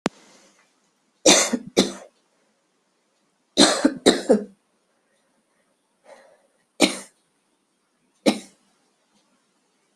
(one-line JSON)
{"expert_labels": [{"quality": "good", "cough_type": "dry", "dyspnea": false, "wheezing": false, "stridor": false, "choking": false, "congestion": false, "nothing": true, "diagnosis": "lower respiratory tract infection", "severity": "mild"}], "age": 46, "gender": "female", "respiratory_condition": false, "fever_muscle_pain": false, "status": "symptomatic"}